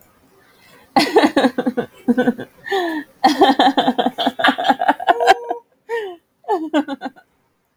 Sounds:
Laughter